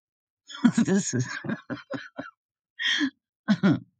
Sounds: Laughter